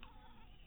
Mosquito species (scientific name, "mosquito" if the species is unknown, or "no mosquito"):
mosquito